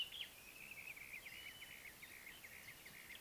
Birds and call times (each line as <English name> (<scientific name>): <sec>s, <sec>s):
Brown-crowned Tchagra (Tchagra australis): 1.8s